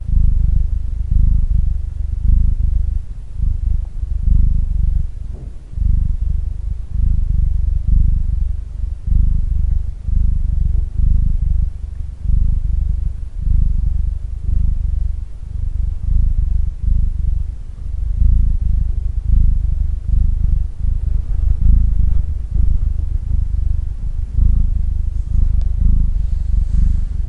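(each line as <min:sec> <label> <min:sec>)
0:00.0 A female cat purring continuously. 0:27.3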